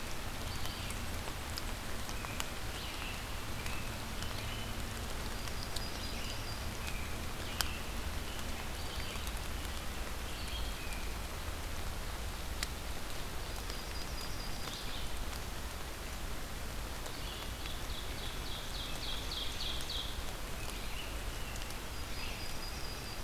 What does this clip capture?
Red-eyed Vireo, American Robin, Yellow-rumped Warbler, Ovenbird